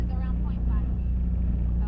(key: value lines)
label: anthrophony, boat engine
recorder: SoundTrap 300